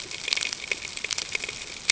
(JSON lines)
{"label": "ambient", "recorder": "HydroMoth"}